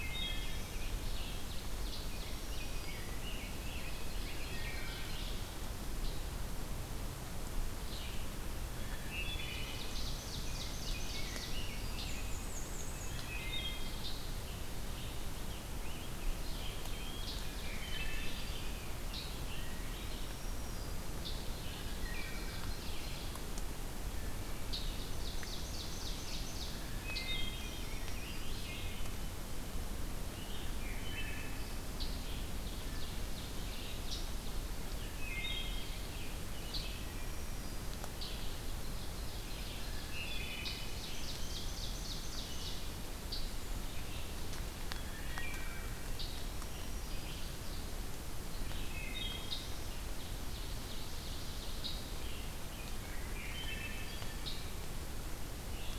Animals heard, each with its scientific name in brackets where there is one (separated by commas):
Black-and-white Warbler (Mniotilta varia), Rose-breasted Grosbeak (Pheucticus ludovicianus), Ovenbird (Seiurus aurocapilla), Scarlet Tanager (Piranga olivacea), Red-eyed Vireo (Vireo olivaceus), Wood Thrush (Hylocichla mustelina), Black-throated Green Warbler (Setophaga virens), Eastern Wood-Pewee (Contopus virens)